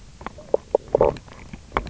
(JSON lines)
{"label": "biophony, knock croak", "recorder": "SoundTrap 300"}